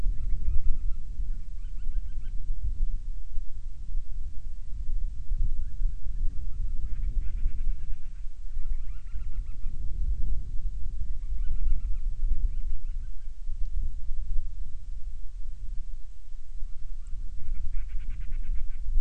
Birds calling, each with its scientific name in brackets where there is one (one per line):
Band-rumped Storm-Petrel (Hydrobates castro)